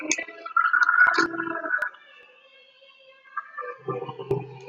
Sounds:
Cough